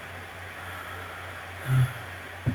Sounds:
Sigh